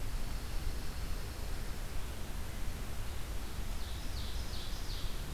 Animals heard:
Ovenbird (Seiurus aurocapilla), Pine Warbler (Setophaga pinus)

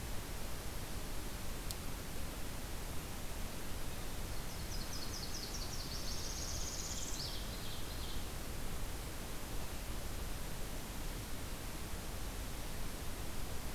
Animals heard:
Ovenbird (Seiurus aurocapilla), Northern Parula (Setophaga americana), Nashville Warbler (Leiothlypis ruficapilla)

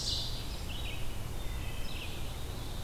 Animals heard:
Wood Thrush (Hylocichla mustelina), Red-eyed Vireo (Vireo olivaceus), Black-throated Blue Warbler (Setophaga caerulescens), Ovenbird (Seiurus aurocapilla)

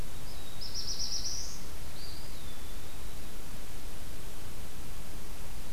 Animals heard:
Eastern Wood-Pewee (Contopus virens), Black-throated Blue Warbler (Setophaga caerulescens)

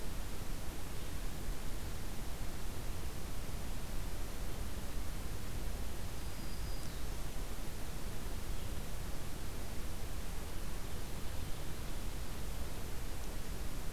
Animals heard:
Black-throated Green Warbler (Setophaga virens)

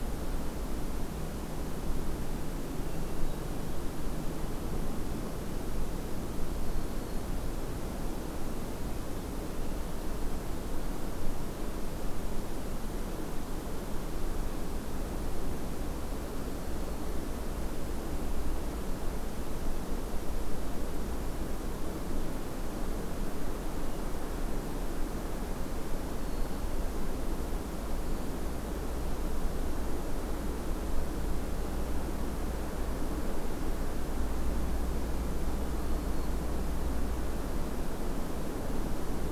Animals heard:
Black-throated Green Warbler (Setophaga virens), Hermit Thrush (Catharus guttatus)

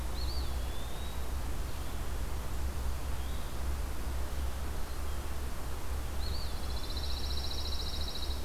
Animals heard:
Pine Warbler (Setophaga pinus), Eastern Wood-Pewee (Contopus virens)

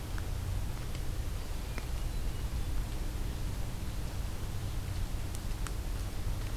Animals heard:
Hermit Thrush (Catharus guttatus)

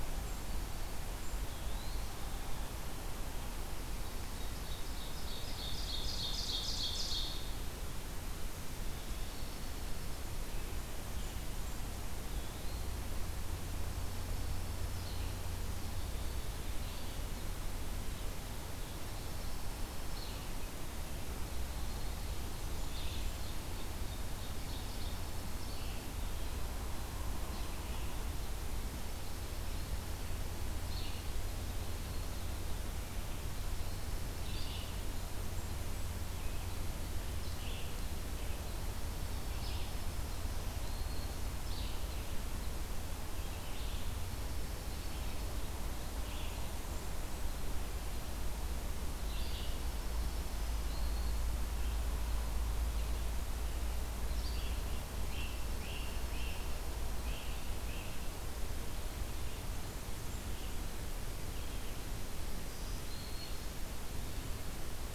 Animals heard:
Red-eyed Vireo (Vireo olivaceus), Ovenbird (Seiurus aurocapilla), Blackburnian Warbler (Setophaga fusca), Dark-eyed Junco (Junco hyemalis), Great Crested Flycatcher (Myiarchus crinitus), Black-throated Green Warbler (Setophaga virens), Eastern Wood-Pewee (Contopus virens)

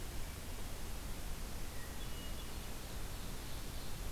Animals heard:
Hermit Thrush (Catharus guttatus), Ovenbird (Seiurus aurocapilla)

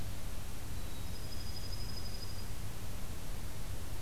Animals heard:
Black-capped Chickadee (Poecile atricapillus), Dark-eyed Junco (Junco hyemalis)

